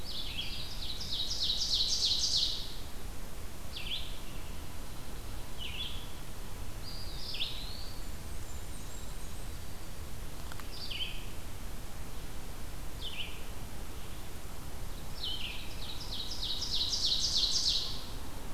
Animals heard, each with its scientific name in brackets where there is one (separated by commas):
Eastern Wood-Pewee (Contopus virens), Blackburnian Warbler (Setophaga fusca), Ovenbird (Seiurus aurocapilla), Red-eyed Vireo (Vireo olivaceus)